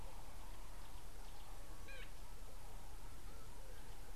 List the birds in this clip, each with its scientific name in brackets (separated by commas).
Gray-backed Camaroptera (Camaroptera brevicaudata)